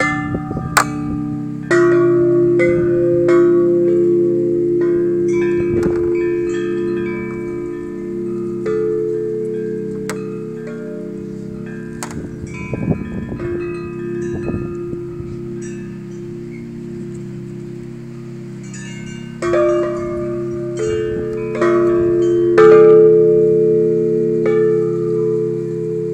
Is there a frog?
no